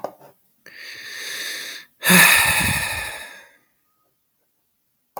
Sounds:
Sigh